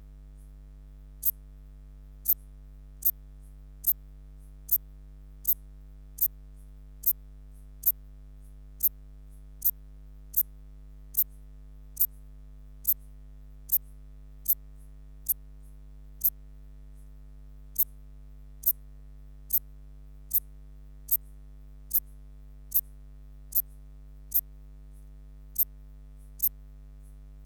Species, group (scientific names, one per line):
Eupholidoptera uvarovi
Orthoptera